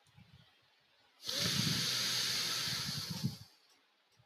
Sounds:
Sigh